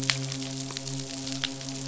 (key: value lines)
label: biophony, midshipman
recorder: SoundTrap 500